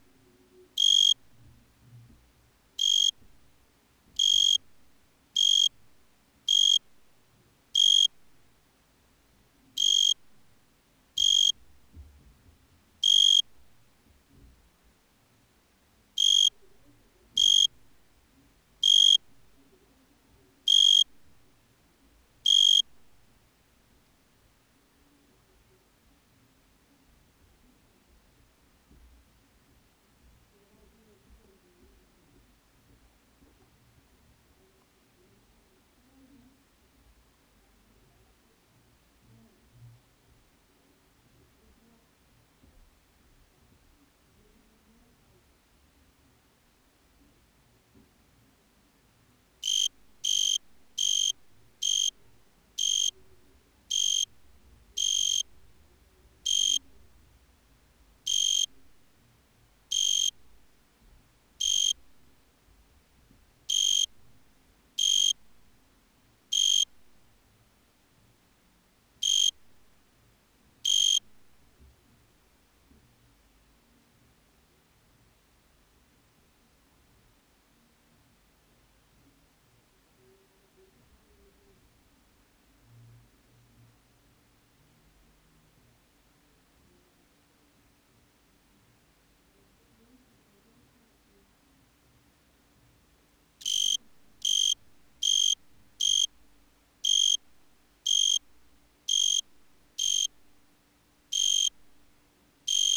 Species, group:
Oecanthus pellucens, Orthoptera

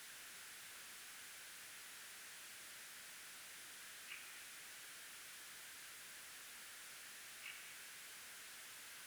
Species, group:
Barbitistes serricauda, Orthoptera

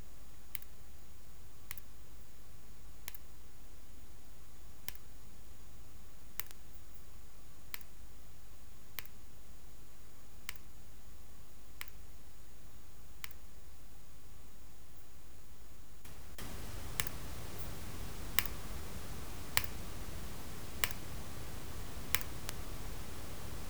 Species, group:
Tylopsis lilifolia, Orthoptera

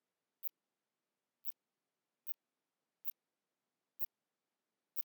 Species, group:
Phaneroptera nana, Orthoptera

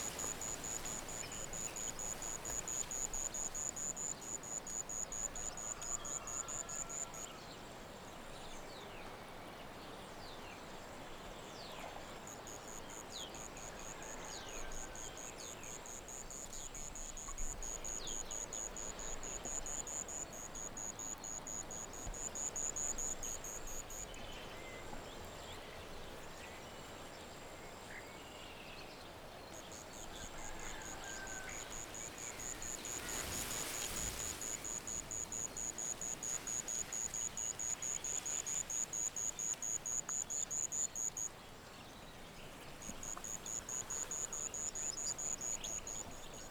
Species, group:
Natula averni, Orthoptera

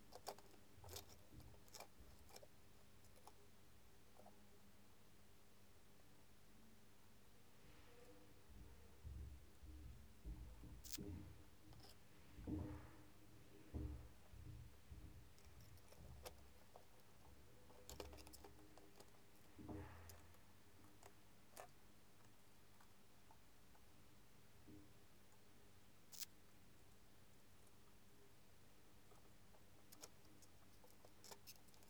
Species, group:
Tessellana lagrecai, Orthoptera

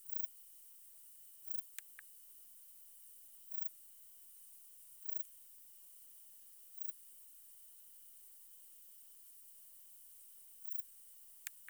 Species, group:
Pterolepis spoliata, Orthoptera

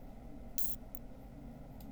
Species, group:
Isophya obtusa, Orthoptera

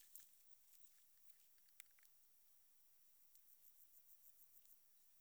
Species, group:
Metrioptera saussuriana, Orthoptera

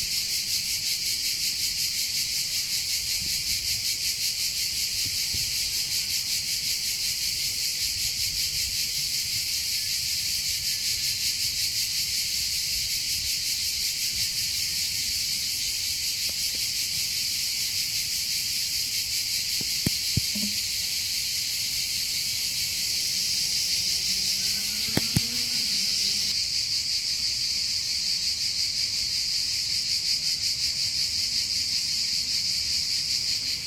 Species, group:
Cicada orni, Cicadidae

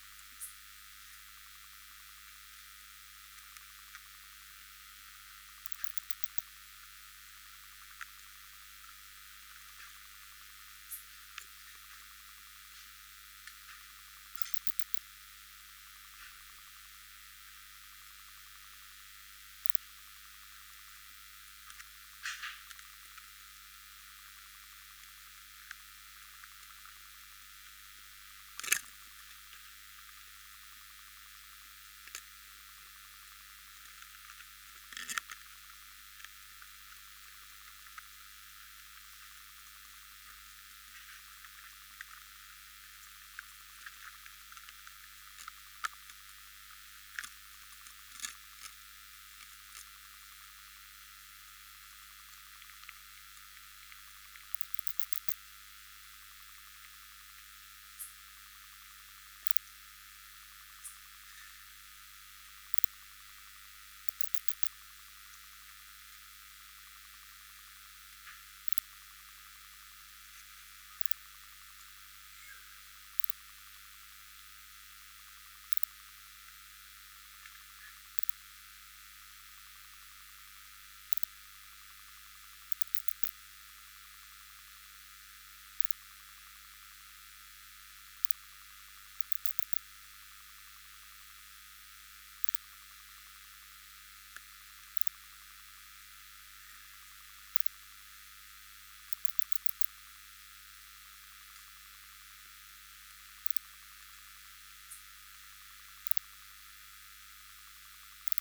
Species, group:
Poecilimon deplanatus, Orthoptera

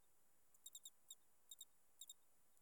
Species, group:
Eugryllodes escalerae, Orthoptera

